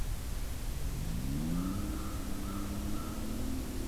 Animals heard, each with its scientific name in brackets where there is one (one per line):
American Crow (Corvus brachyrhynchos)